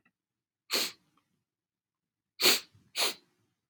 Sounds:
Sniff